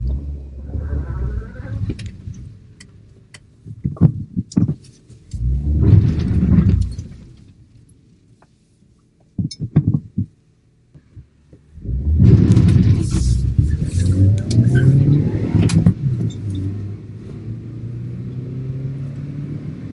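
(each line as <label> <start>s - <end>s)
A car is reversing. 0.0s - 3.3s
A vehicle gear is being shifted to forward. 3.3s - 5.0s
The sound of a vehicle moving forward slightly. 5.1s - 7.1s
Changing gears again. 7.1s - 11.6s
Moving backward, then forward, exiting the park, and continuing on the way. 11.6s - 19.9s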